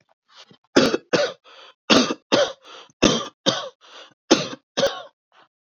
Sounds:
Cough